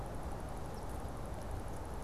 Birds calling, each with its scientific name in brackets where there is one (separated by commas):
Eastern Phoebe (Sayornis phoebe)